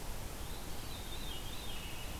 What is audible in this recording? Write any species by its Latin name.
Catharus fuscescens